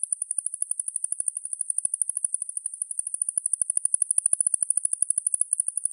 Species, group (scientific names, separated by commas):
Decticus albifrons, Orthoptera